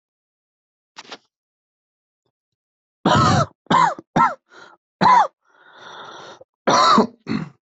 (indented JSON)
{
  "expert_labels": [
    {
      "quality": "good",
      "cough_type": "wet",
      "dyspnea": false,
      "wheezing": true,
      "stridor": false,
      "choking": false,
      "congestion": false,
      "nothing": false,
      "diagnosis": "lower respiratory tract infection",
      "severity": "mild"
    }
  ],
  "age": 25,
  "gender": "male",
  "respiratory_condition": false,
  "fever_muscle_pain": false,
  "status": "symptomatic"
}